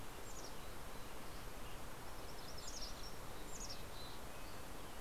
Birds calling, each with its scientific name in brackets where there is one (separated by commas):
Red-breasted Nuthatch (Sitta canadensis), MacGillivray's Warbler (Geothlypis tolmiei), Mountain Chickadee (Poecile gambeli)